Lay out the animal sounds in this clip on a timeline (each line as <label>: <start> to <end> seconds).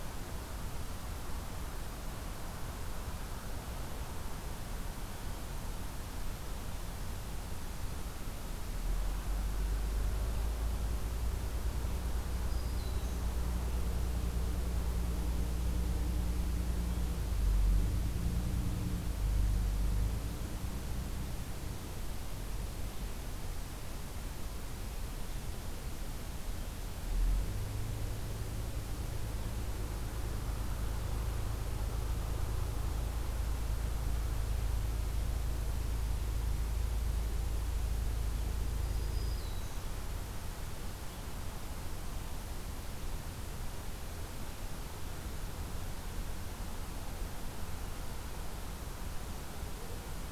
Black-throated Green Warbler (Setophaga virens): 12.4 to 13.3 seconds
Black-throated Green Warbler (Setophaga virens): 38.8 to 40.0 seconds